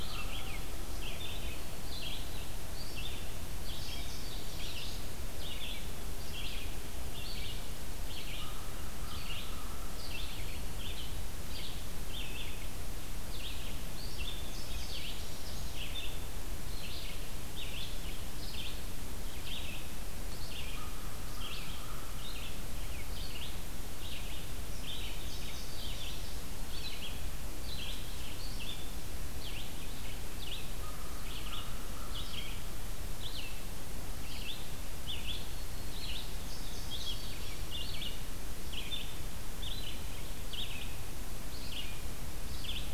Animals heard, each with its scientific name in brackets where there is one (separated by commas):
American Crow (Corvus brachyrhynchos), Red-eyed Vireo (Vireo olivaceus), Indigo Bunting (Passerina cyanea)